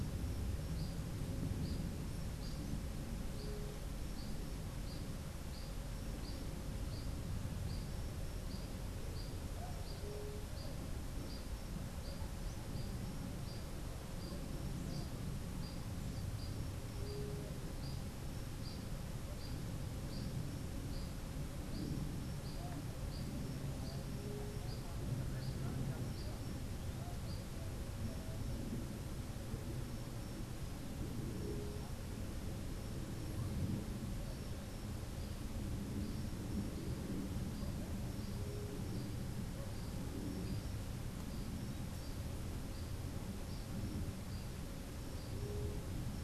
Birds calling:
White-tipped Dove (Leptotila verreauxi)
unidentified bird

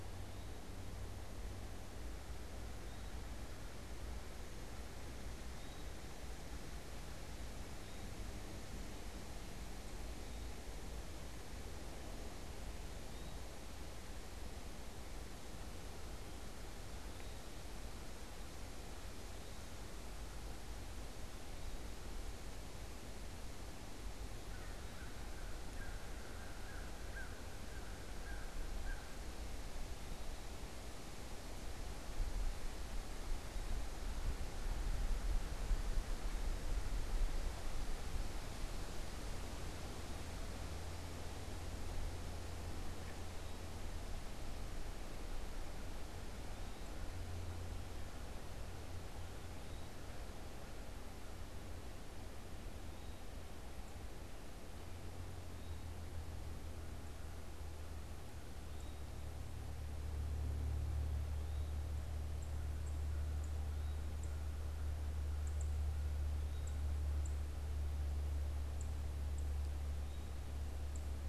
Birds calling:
American Crow (Corvus brachyrhynchos)
Eastern Wood-Pewee (Contopus virens)
unidentified bird

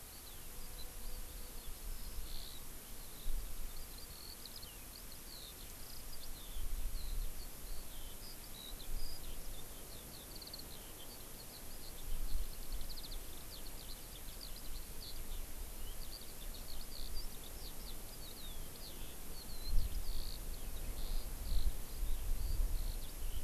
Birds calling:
Eurasian Skylark (Alauda arvensis)

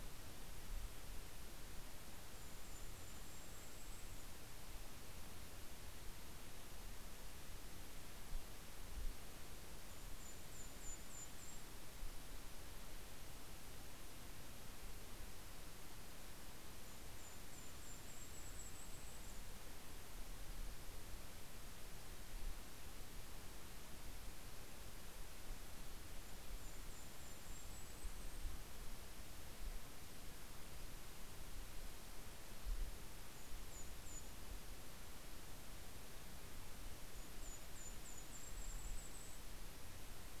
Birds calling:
Golden-crowned Kinglet (Regulus satrapa)

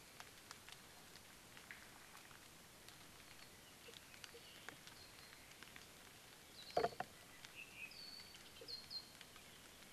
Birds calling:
Hawaii Akepa (Loxops coccineus)
Apapane (Himatione sanguinea)

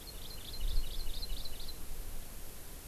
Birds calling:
Hawaii Amakihi (Chlorodrepanis virens)

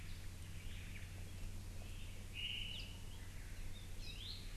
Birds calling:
Omao (Myadestes obscurus)
Apapane (Himatione sanguinea)
Iiwi (Drepanis coccinea)

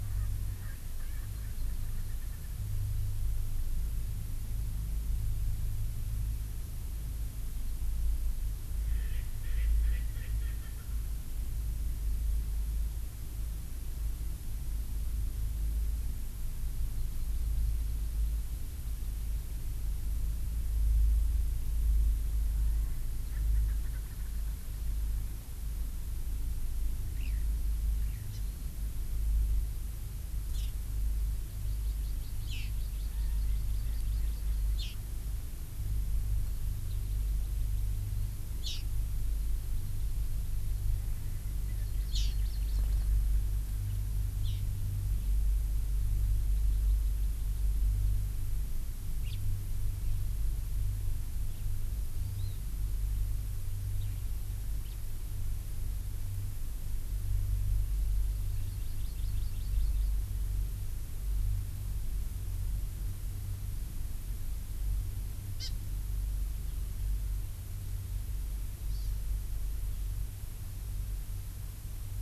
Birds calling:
Erckel's Francolin (Pternistis erckelii)
House Finch (Haemorhous mexicanus)
Eurasian Skylark (Alauda arvensis)
Hawaii Amakihi (Chlorodrepanis virens)

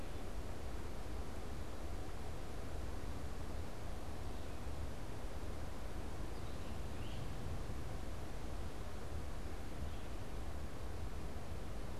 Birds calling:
Great Crested Flycatcher (Myiarchus crinitus)

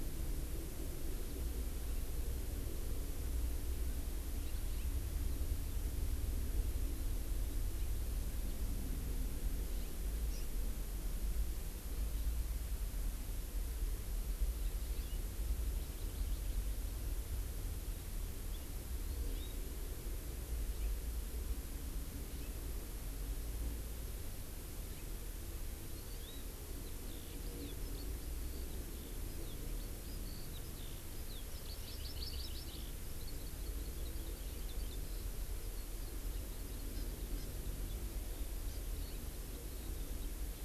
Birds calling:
Eurasian Skylark (Alauda arvensis)
Hawaii Amakihi (Chlorodrepanis virens)

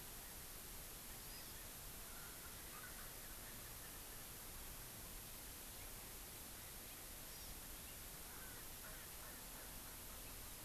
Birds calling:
Erckel's Francolin (Pternistis erckelii)
California Quail (Callipepla californica)
Hawaii Amakihi (Chlorodrepanis virens)

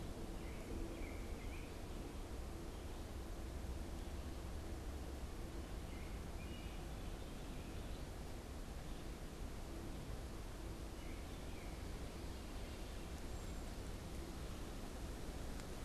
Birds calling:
American Robin (Turdus migratorius)
unidentified bird

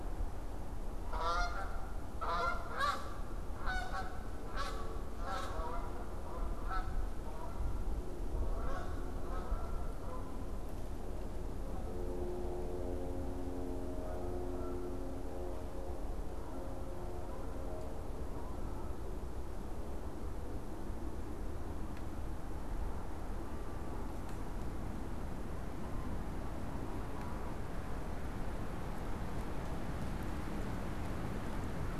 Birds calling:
Canada Goose (Branta canadensis)

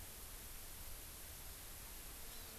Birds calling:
Hawaii Amakihi (Chlorodrepanis virens)

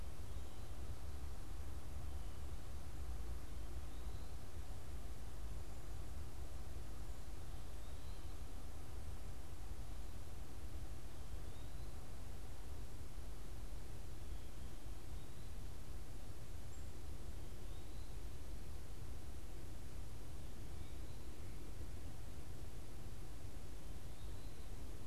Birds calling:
unidentified bird

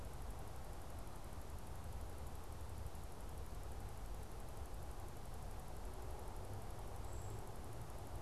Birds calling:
Brown Creeper (Certhia americana)

